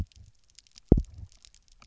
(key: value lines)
label: biophony, double pulse
recorder: SoundTrap 300